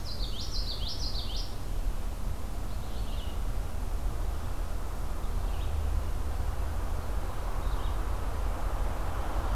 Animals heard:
Common Yellowthroat (Geothlypis trichas), Red-eyed Vireo (Vireo olivaceus)

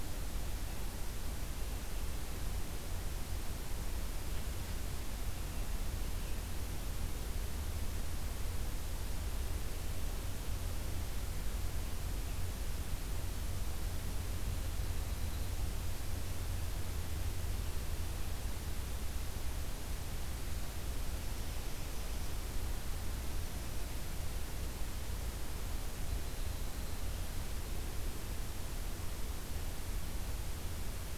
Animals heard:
unidentified call

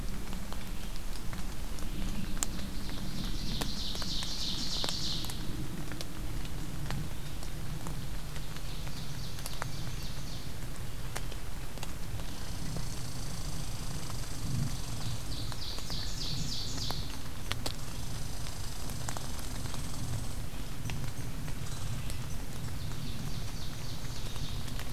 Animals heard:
Red-eyed Vireo (Vireo olivaceus), Red Squirrel (Tamiasciurus hudsonicus), Ovenbird (Seiurus aurocapilla)

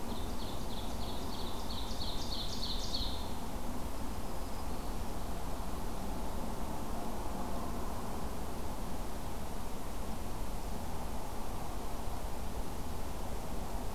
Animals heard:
Black-throated Green Warbler (Setophaga virens), Ovenbird (Seiurus aurocapilla)

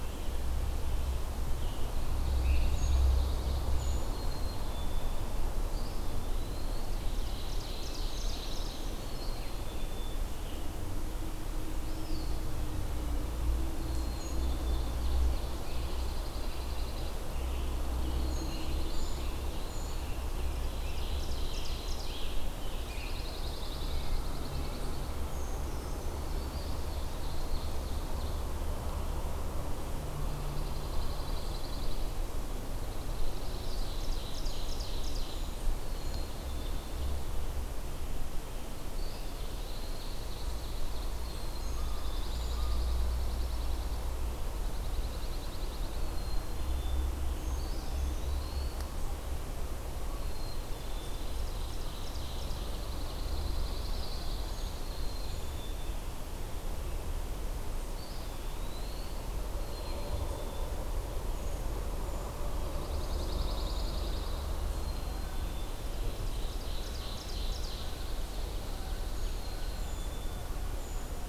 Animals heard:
Pine Warbler (Setophaga pinus), Ovenbird (Seiurus aurocapilla), Scarlet Tanager (Piranga olivacea), Eastern Wood-Pewee (Contopus virens), American Crow (Corvus brachyrhynchos), Black-capped Chickadee (Poecile atricapillus), Brown Creeper (Certhia americana)

